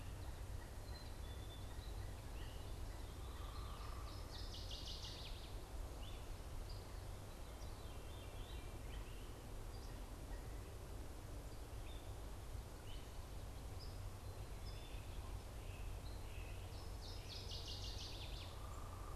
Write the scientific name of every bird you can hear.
Dryocopus pileatus, Spinus tristis, Poecile atricapillus, Dumetella carolinensis, unidentified bird, Parkesia noveboracensis, Catharus fuscescens